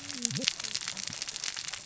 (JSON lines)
{"label": "biophony, cascading saw", "recorder": "SoundTrap 600 or HydroMoth"}